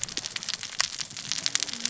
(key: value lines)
label: biophony, cascading saw
recorder: SoundTrap 600 or HydroMoth